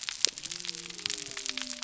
{"label": "biophony", "recorder": "SoundTrap 300"}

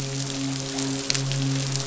{"label": "biophony, midshipman", "recorder": "SoundTrap 500"}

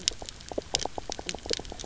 {"label": "biophony, knock croak", "recorder": "SoundTrap 300"}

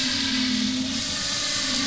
{"label": "anthrophony, boat engine", "recorder": "SoundTrap 500"}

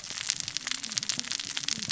{"label": "biophony, cascading saw", "recorder": "SoundTrap 600 or HydroMoth"}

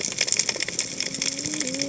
{"label": "biophony, cascading saw", "recorder": "HydroMoth"}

